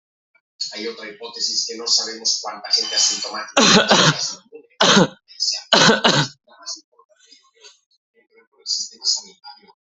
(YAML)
expert_labels:
- quality: good
  cough_type: unknown
  dyspnea: false
  wheezing: false
  stridor: false
  choking: false
  congestion: false
  nothing: true
  diagnosis: lower respiratory tract infection
  severity: mild